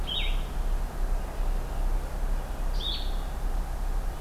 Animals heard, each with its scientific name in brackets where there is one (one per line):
Blue-headed Vireo (Vireo solitarius)